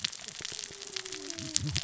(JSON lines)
{"label": "biophony, cascading saw", "recorder": "SoundTrap 600 or HydroMoth"}